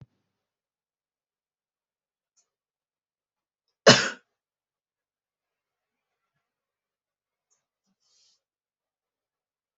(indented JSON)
{
  "expert_labels": [
    {
      "quality": "good",
      "cough_type": "dry",
      "dyspnea": false,
      "wheezing": false,
      "stridor": false,
      "choking": false,
      "congestion": false,
      "nothing": true,
      "diagnosis": "healthy cough",
      "severity": "pseudocough/healthy cough"
    }
  ],
  "age": 33,
  "gender": "male",
  "respiratory_condition": false,
  "fever_muscle_pain": false,
  "status": "healthy"
}